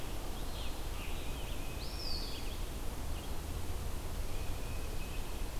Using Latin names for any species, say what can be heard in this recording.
Vireo olivaceus, Baeolophus bicolor, Contopus virens